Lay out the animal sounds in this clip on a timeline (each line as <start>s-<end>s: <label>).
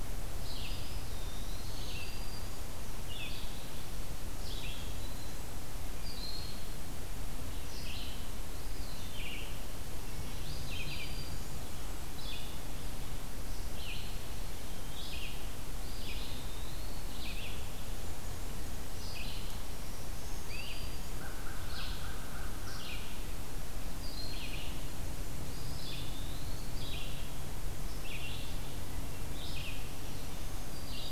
0.0s-19.6s: Red-eyed Vireo (Vireo olivaceus)
0.6s-2.0s: Eastern Wood-Pewee (Contopus virens)
1.2s-2.8s: Black-throated Green Warbler (Setophaga virens)
5.8s-6.7s: Broad-winged Hawk (Buteo platypterus)
8.5s-9.2s: Eastern Wood-Pewee (Contopus virens)
10.1s-11.7s: Black-throated Green Warbler (Setophaga virens)
10.6s-11.3s: unidentified call
15.6s-17.2s: Eastern Wood-Pewee (Contopus virens)
17.4s-18.9s: Blackburnian Warbler (Setophaga fusca)
19.8s-21.4s: Black-throated Green Warbler (Setophaga virens)
20.4s-20.8s: Great Crested Flycatcher (Myiarchus crinitus)
20.4s-31.1s: Red-eyed Vireo (Vireo olivaceus)
21.1s-23.0s: American Crow (Corvus brachyrhynchos)
25.4s-26.9s: Eastern Wood-Pewee (Contopus virens)
30.0s-31.1s: Black-throated Green Warbler (Setophaga virens)